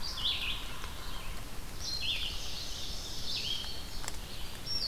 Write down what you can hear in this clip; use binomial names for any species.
Sphyrapicus varius, Vireo olivaceus, Seiurus aurocapilla, Passerina cyanea